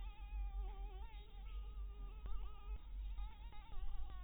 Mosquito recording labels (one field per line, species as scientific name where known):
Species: Anopheles dirus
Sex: female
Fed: blood-fed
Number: one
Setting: cup